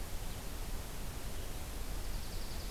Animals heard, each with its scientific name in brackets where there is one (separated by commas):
Dark-eyed Junco (Junco hyemalis)